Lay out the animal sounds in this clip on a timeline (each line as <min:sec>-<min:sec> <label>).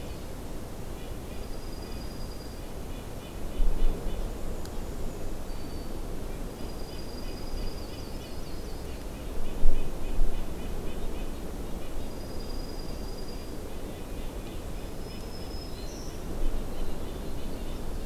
0:00.0-0:04.3 Red-breasted Nuthatch (Sitta canadensis)
0:01.3-0:02.7 Dark-eyed Junco (Junco hyemalis)
0:04.2-0:05.5 Black-and-white Warbler (Mniotilta varia)
0:05.4-0:06.2 Black-throated Green Warbler (Setophaga virens)
0:06.2-0:12.2 Red-breasted Nuthatch (Sitta canadensis)
0:06.4-0:07.7 Dark-eyed Junco (Junco hyemalis)
0:07.4-0:09.0 Yellow-rumped Warbler (Setophaga coronata)
0:12.0-0:13.7 Dark-eyed Junco (Junco hyemalis)
0:13.3-0:18.1 Red-breasted Nuthatch (Sitta canadensis)
0:14.8-0:16.3 Black-throated Green Warbler (Setophaga virens)
0:17.1-0:18.1 Winter Wren (Troglodytes hiemalis)